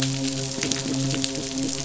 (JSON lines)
{"label": "biophony", "recorder": "SoundTrap 500"}
{"label": "biophony, midshipman", "recorder": "SoundTrap 500"}